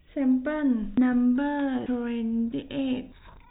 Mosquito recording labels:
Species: no mosquito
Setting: cup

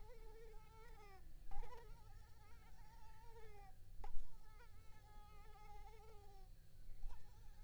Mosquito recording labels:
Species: Culex pipiens complex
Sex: female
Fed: unfed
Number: one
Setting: cup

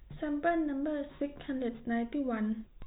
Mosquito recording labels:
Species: no mosquito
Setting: cup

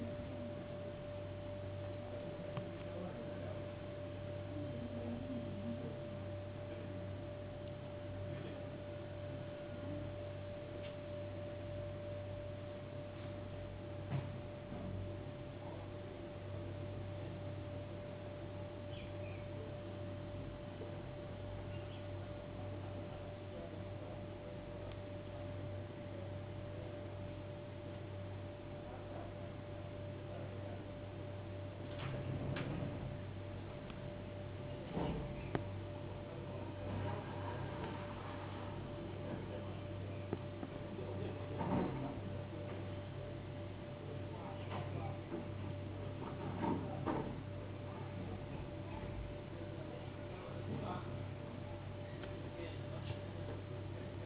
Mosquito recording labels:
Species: no mosquito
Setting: insect culture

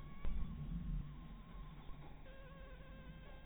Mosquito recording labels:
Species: mosquito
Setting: cup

